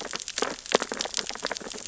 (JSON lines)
{"label": "biophony, sea urchins (Echinidae)", "recorder": "SoundTrap 600 or HydroMoth"}